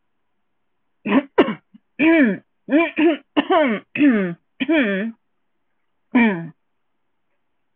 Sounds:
Throat clearing